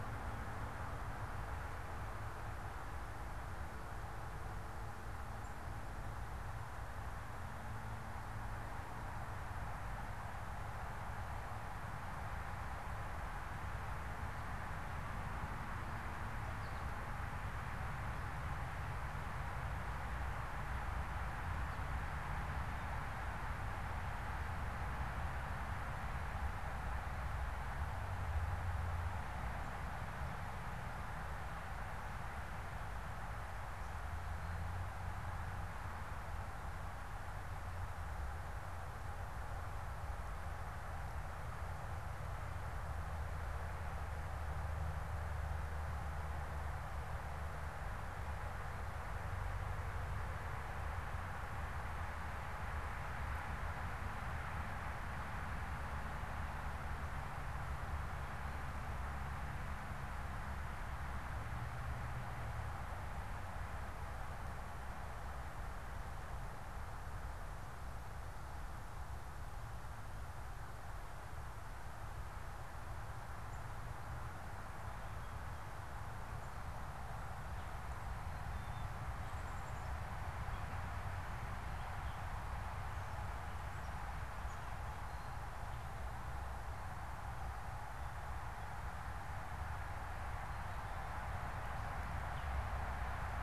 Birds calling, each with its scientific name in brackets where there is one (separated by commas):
Gray Catbird (Dumetella carolinensis), American Goldfinch (Spinus tristis)